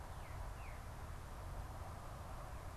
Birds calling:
Veery (Catharus fuscescens), Northern Cardinal (Cardinalis cardinalis)

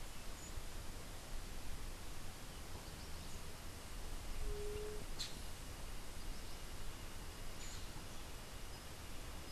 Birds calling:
White-tipped Dove (Leptotila verreauxi), Black-headed Saltator (Saltator atriceps)

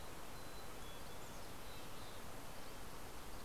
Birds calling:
Mountain Chickadee (Poecile gambeli), Red-breasted Nuthatch (Sitta canadensis)

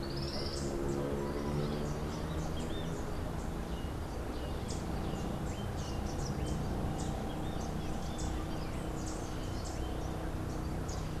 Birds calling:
Tropical Kingbird (Tyrannus melancholicus), Rufous-capped Warbler (Basileuterus rufifrons)

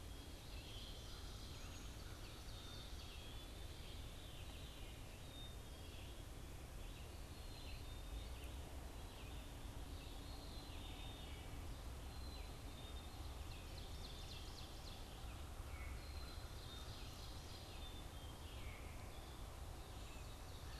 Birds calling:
Ovenbird (Seiurus aurocapilla), Veery (Catharus fuscescens), Black-capped Chickadee (Poecile atricapillus), Red-eyed Vireo (Vireo olivaceus)

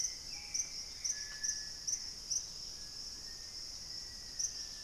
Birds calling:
Dusky-capped Greenlet (Pachysylvia hypoxantha), White-throated Woodpecker (Piculus leucolaemus), Hauxwell's Thrush (Turdus hauxwelli), Black-faced Antthrush (Formicarius analis), Screaming Piha (Lipaugus vociferans)

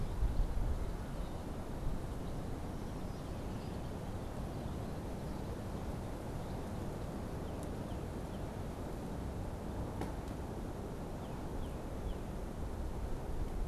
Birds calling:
Red-winged Blackbird (Agelaius phoeniceus), Northern Cardinal (Cardinalis cardinalis)

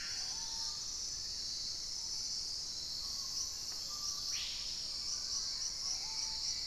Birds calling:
Screaming Piha (Lipaugus vociferans), Hauxwell's Thrush (Turdus hauxwelli), Fasciated Antshrike (Cymbilaimus lineatus), Black-faced Antthrush (Formicarius analis), Mealy Parrot (Amazona farinosa), Black-tailed Trogon (Trogon melanurus), unidentified bird, Purple-throated Fruitcrow (Querula purpurata), Dusky-capped Greenlet (Pachysylvia hypoxantha)

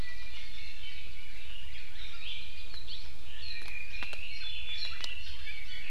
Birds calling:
Iiwi (Drepanis coccinea), Red-billed Leiothrix (Leiothrix lutea)

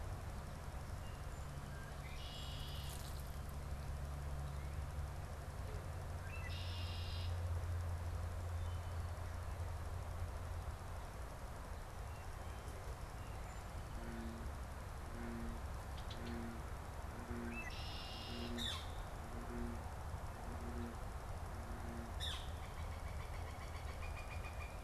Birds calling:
Northern Flicker (Colaptes auratus), Red-winged Blackbird (Agelaius phoeniceus)

